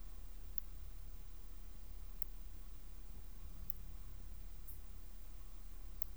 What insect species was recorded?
Leptophyes laticauda